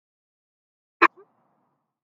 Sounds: Sneeze